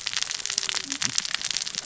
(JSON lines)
{"label": "biophony, cascading saw", "recorder": "SoundTrap 600 or HydroMoth"}